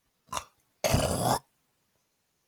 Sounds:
Throat clearing